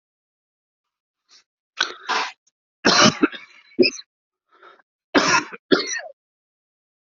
{"expert_labels": [{"quality": "good", "cough_type": "wet", "dyspnea": false, "wheezing": false, "stridor": false, "choking": false, "congestion": false, "nothing": true, "diagnosis": "lower respiratory tract infection", "severity": "severe"}], "age": 38, "gender": "male", "respiratory_condition": false, "fever_muscle_pain": false, "status": "symptomatic"}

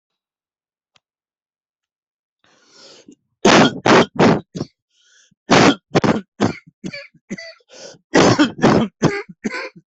{"expert_labels": [{"quality": "poor", "cough_type": "unknown", "dyspnea": false, "wheezing": false, "stridor": false, "choking": false, "congestion": false, "nothing": true, "diagnosis": "upper respiratory tract infection", "severity": "unknown"}], "age": 52, "gender": "male", "respiratory_condition": true, "fever_muscle_pain": false, "status": "symptomatic"}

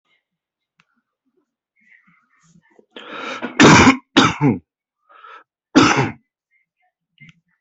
{"expert_labels": [{"quality": "good", "cough_type": "wet", "dyspnea": false, "wheezing": false, "stridor": false, "choking": false, "congestion": false, "nothing": true, "diagnosis": "healthy cough", "severity": "pseudocough/healthy cough"}], "age": 34, "gender": "male", "respiratory_condition": false, "fever_muscle_pain": false, "status": "healthy"}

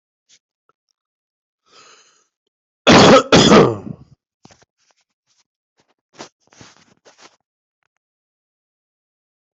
{"expert_labels": [{"quality": "ok", "cough_type": "dry", "dyspnea": false, "wheezing": false, "stridor": false, "choking": false, "congestion": false, "nothing": true, "diagnosis": "upper respiratory tract infection", "severity": "mild"}], "age": 56, "gender": "female", "respiratory_condition": false, "fever_muscle_pain": false, "status": "COVID-19"}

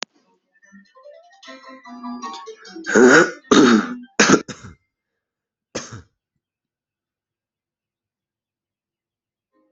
{"expert_labels": [{"quality": "good", "cough_type": "dry", "dyspnea": false, "wheezing": false, "stridor": false, "choking": false, "congestion": true, "nothing": false, "diagnosis": "upper respiratory tract infection", "severity": "mild"}], "age": 21, "gender": "male", "respiratory_condition": false, "fever_muscle_pain": false, "status": "symptomatic"}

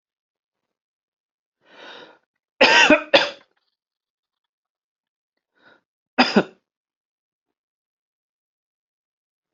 {"expert_labels": [{"quality": "ok", "cough_type": "dry", "dyspnea": false, "wheezing": false, "stridor": false, "choking": false, "congestion": false, "nothing": true, "diagnosis": "healthy cough", "severity": "pseudocough/healthy cough"}], "age": 32, "gender": "male", "respiratory_condition": false, "fever_muscle_pain": false, "status": "symptomatic"}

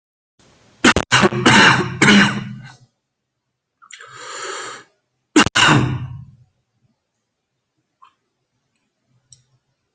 {"expert_labels": [{"quality": "poor", "cough_type": "unknown", "dyspnea": false, "wheezing": false, "stridor": false, "choking": false, "congestion": false, "nothing": true, "diagnosis": "lower respiratory tract infection", "severity": "unknown"}]}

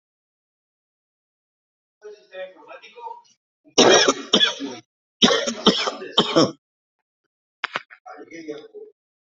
{"expert_labels": [{"quality": "good", "cough_type": "dry", "dyspnea": false, "wheezing": false, "stridor": false, "choking": false, "congestion": false, "nothing": true, "diagnosis": "upper respiratory tract infection", "severity": "mild"}], "age": 29, "gender": "male", "respiratory_condition": true, "fever_muscle_pain": true, "status": "symptomatic"}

